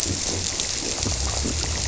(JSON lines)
{"label": "biophony", "recorder": "SoundTrap 300"}